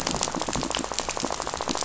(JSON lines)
{"label": "biophony, rattle", "recorder": "SoundTrap 500"}